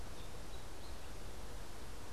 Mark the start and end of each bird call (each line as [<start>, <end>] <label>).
[0.00, 2.13] American Robin (Turdus migratorius)